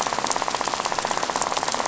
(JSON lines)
{"label": "biophony, rattle", "recorder": "SoundTrap 500"}